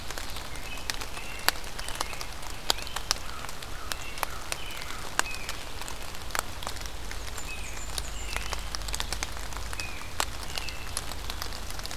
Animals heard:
American Robin (Turdus migratorius), American Crow (Corvus brachyrhynchos), Great Crested Flycatcher (Myiarchus crinitus), Blackburnian Warbler (Setophaga fusca), Ovenbird (Seiurus aurocapilla)

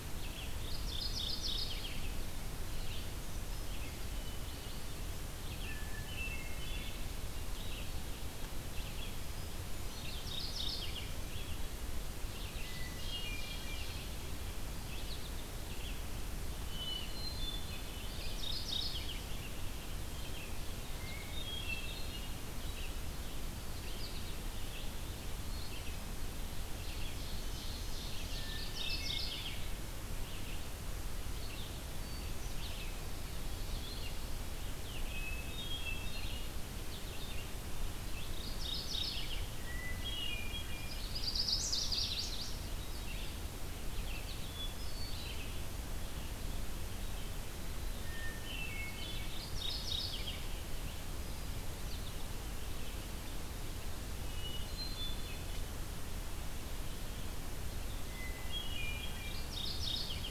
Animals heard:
Mourning Warbler (Geothlypis philadelphia), Ovenbird (Seiurus aurocapilla), Red-eyed Vireo (Vireo olivaceus), Chestnut-sided Warbler (Setophaga pensylvanica), Hermit Thrush (Catharus guttatus)

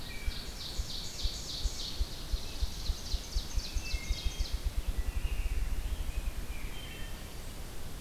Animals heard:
Wood Thrush (Hylocichla mustelina), Rose-breasted Grosbeak (Pheucticus ludovicianus), Ovenbird (Seiurus aurocapilla), Ruffed Grouse (Bonasa umbellus)

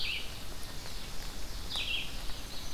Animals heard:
Red-eyed Vireo (Vireo olivaceus), Ovenbird (Seiurus aurocapilla)

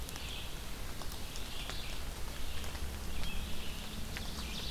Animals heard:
Ovenbird (Seiurus aurocapilla), Red-eyed Vireo (Vireo olivaceus)

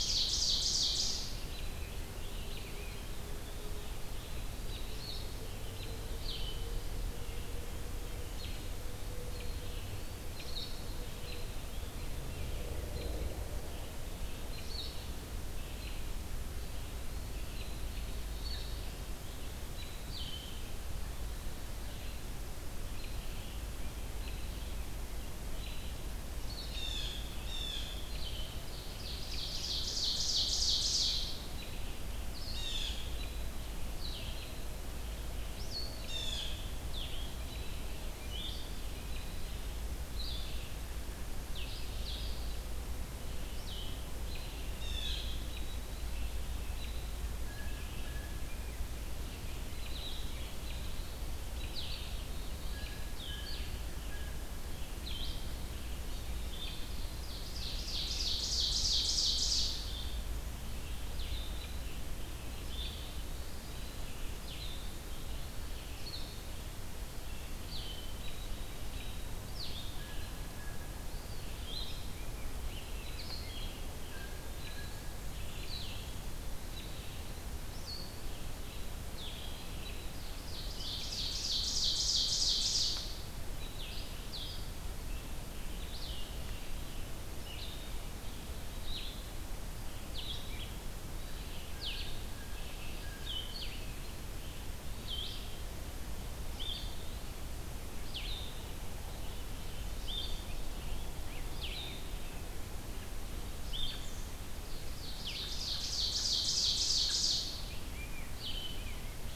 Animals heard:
Blue-headed Vireo (Vireo solitarius), American Robin (Turdus migratorius), Blue Jay (Cyanocitta cristata), Ovenbird (Seiurus aurocapilla), Eastern Wood-Pewee (Contopus virens), Hermit Thrush (Catharus guttatus), Scarlet Tanager (Piranga olivacea)

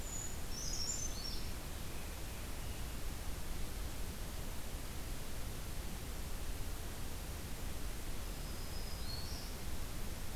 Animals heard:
Brown Creeper (Certhia americana), Scarlet Tanager (Piranga olivacea), Black-throated Green Warbler (Setophaga virens)

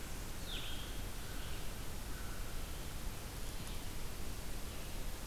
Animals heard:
American Crow (Corvus brachyrhynchos), Blue-headed Vireo (Vireo solitarius)

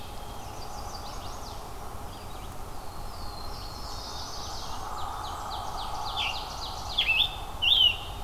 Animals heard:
Scarlet Tanager (Piranga olivacea), Ovenbird (Seiurus aurocapilla), Black-throated Green Warbler (Setophaga virens), Red-eyed Vireo (Vireo olivaceus), Chestnut-sided Warbler (Setophaga pensylvanica), Black-throated Blue Warbler (Setophaga caerulescens), Blackburnian Warbler (Setophaga fusca)

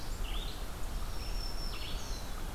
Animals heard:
Black-throated Green Warbler (Setophaga virens), Red-eyed Vireo (Vireo olivaceus)

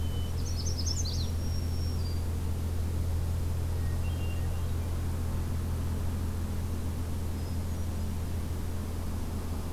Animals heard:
Magnolia Warbler (Setophaga magnolia), Black-throated Green Warbler (Setophaga virens), Hermit Thrush (Catharus guttatus)

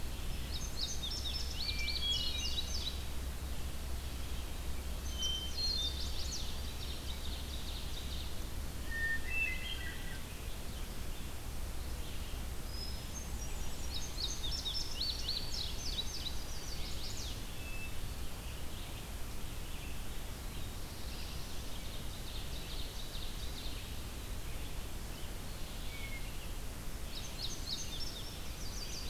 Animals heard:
Black-throated Blue Warbler (Setophaga caerulescens), Ovenbird (Seiurus aurocapilla), Red-eyed Vireo (Vireo olivaceus), Chestnut-sided Warbler (Setophaga pensylvanica), Hermit Thrush (Catharus guttatus), Indigo Bunting (Passerina cyanea)

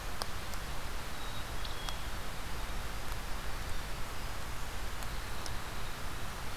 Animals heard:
Winter Wren (Troglodytes hiemalis), Black-capped Chickadee (Poecile atricapillus)

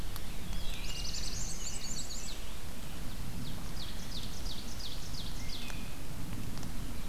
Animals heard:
Chestnut-sided Warbler (Setophaga pensylvanica), Black-throated Blue Warbler (Setophaga caerulescens), Black-and-white Warbler (Mniotilta varia), Wood Thrush (Hylocichla mustelina), Ovenbird (Seiurus aurocapilla)

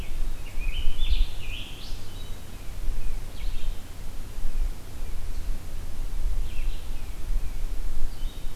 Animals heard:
Scarlet Tanager (Piranga olivacea), Tufted Titmouse (Baeolophus bicolor), Blue-headed Vireo (Vireo solitarius)

